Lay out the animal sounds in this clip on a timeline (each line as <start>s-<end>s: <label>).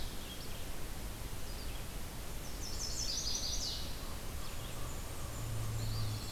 0.0s-6.3s: Red-eyed Vireo (Vireo olivaceus)
2.2s-4.1s: Chestnut-sided Warbler (Setophaga pensylvanica)
4.5s-6.3s: Blackburnian Warbler (Setophaga fusca)
5.6s-6.3s: Eastern Wood-Pewee (Contopus virens)
5.8s-6.3s: Pine Warbler (Setophaga pinus)